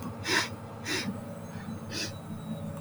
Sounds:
Sniff